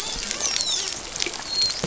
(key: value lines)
label: biophony, dolphin
recorder: SoundTrap 500